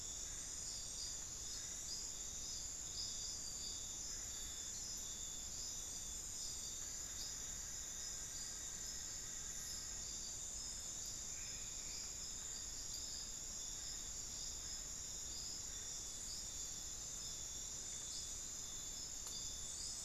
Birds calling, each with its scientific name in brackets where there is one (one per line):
Black-fronted Nunbird (Monasa nigrifrons)